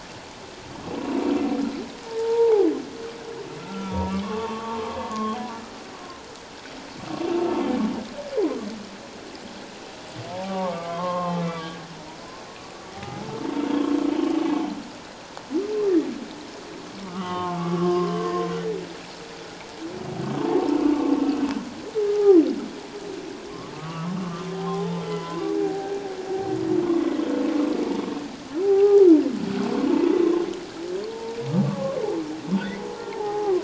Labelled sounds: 2.1	2.7	humpback whale, 0.78 to 1.0 kHz
3.6	5.4	humpback whale, 0.81 to 1.4 kHz
10.3	11.8	humpback whale, 0.78 to 3.3 kHz
12.9	13.3	humpback whale, 0.78 to 1.3 kHz
17.0	18.2	humpback whale, 0.81 to 3.2 kHz
20.4	20.8	humpback whale, 0.78 to 1.1 kHz
22.1	22.4	humpback whale, 1.1 to 1.3 kHz
23.7	25.9	humpback whale, 0.78 to 3.7 kHz
26.9	27.1	humpback whale, 1.0 to 1.2 kHz
28.6	29.1	humpback whale, 0.78 to 1.3 kHz
29.9	30.1	humpback whale, 0.84 to 1.1 kHz
31.1	31.4	humpback whale, 0.88 to 0.97 kHz
31.6	32.0	humpback whale, 1.0 to 1.2 kHz
33.1	33.6	humpback whale, 0.78 to 1.3 kHz

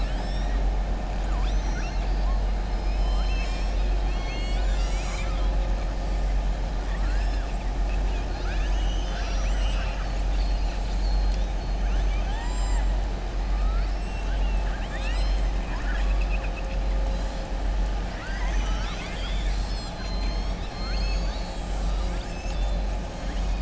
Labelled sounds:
1.2	2.2	killer whale, southern resident, 0.95 to 6.3 kHz
2.7	3.9	killer whale, southern resident, 1.1 to 7.9 kHz
11.9	12.9	killer whale, southern resident, 0.83 to 5.1 kHz
15.6	16.7	killer whale, southern resident, 0.98 to 3.4 kHz

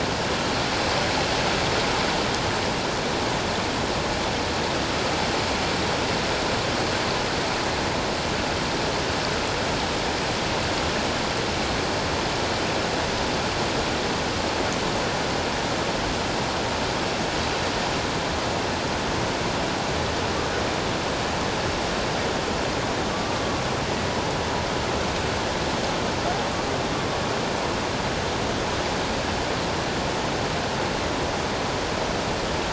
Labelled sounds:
23.2	23.6	humpback whale, 1.1 to 1.2 kHz

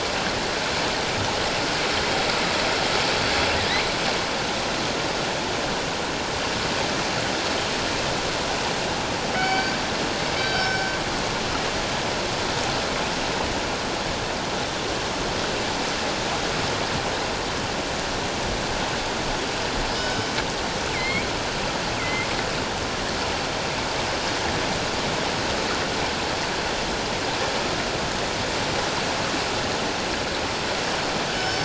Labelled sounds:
9.3	9.7	killer whale, northern resident, G clan, 1.3 to 4.7 kHz
10.4	10.9	killer whale, northern resident, G clan, 1.4 to 5.4 kHz
19.9	20.3	killer whale, northern resident, G clan, 1.4 to 3.1 kHz
20.9	21.3	killer whale, northern resident, G clan, 2.0 to 2.4 kHz
22.0	22.3	killer whale, northern resident, G clan, 2.0 to 2.2 kHz
31.3	31.6	killer whale, northern resident, G clan, 5.2 to 5.4 kHz

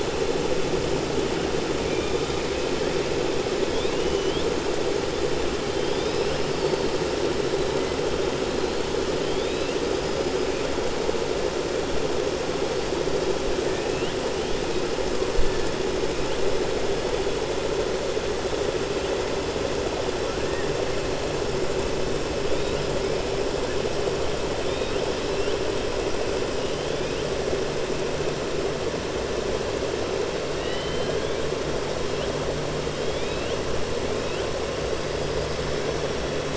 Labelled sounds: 3.6	4.5	killer whale, 2.1 to 4.1 kHz
30.5	31.4	killer whale, 1.9 to 4.3 kHz

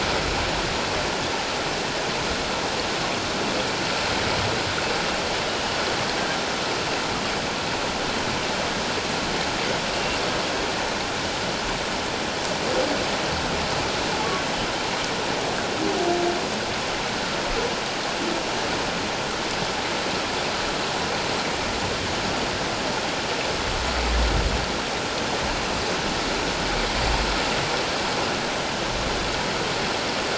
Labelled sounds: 5.5	5.8	humpback whale, 2.8 to 3.1 kHz
9.9	10.2	humpback whale, 2.7 to 2.8 kHz

